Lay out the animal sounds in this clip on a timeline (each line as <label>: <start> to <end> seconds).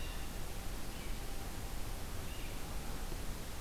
Red-eyed Vireo (Vireo olivaceus): 0.0 to 3.6 seconds